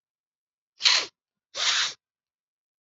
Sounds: Sniff